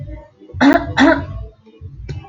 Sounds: Throat clearing